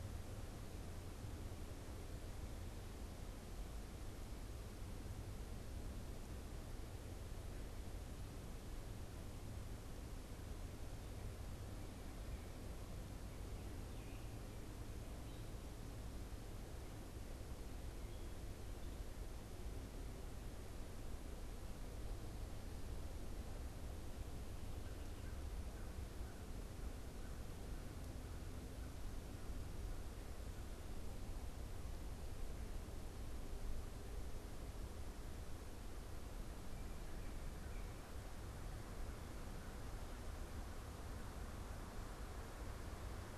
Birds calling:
American Crow (Corvus brachyrhynchos)

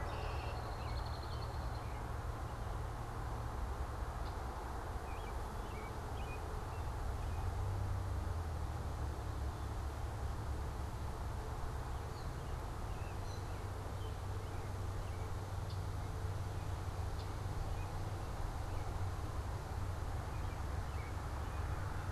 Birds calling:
American Robin (Turdus migratorius)
Red-winged Blackbird (Agelaius phoeniceus)

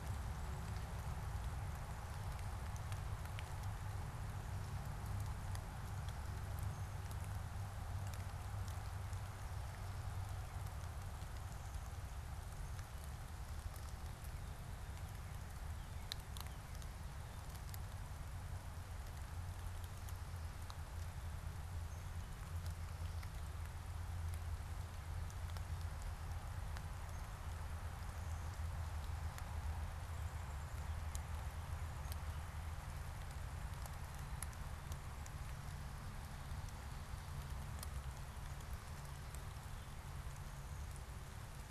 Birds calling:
American Goldfinch (Spinus tristis)

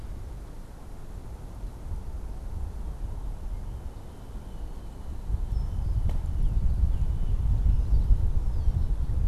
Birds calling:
Red-winged Blackbird (Agelaius phoeniceus)
Northern Cardinal (Cardinalis cardinalis)

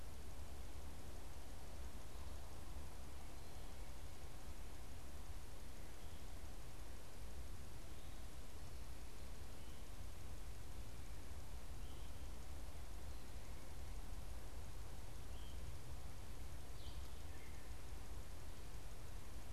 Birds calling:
unidentified bird

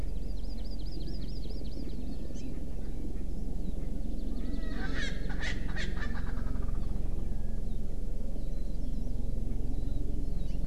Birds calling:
Erckel's Francolin (Pternistis erckelii)
Hawaii Amakihi (Chlorodrepanis virens)

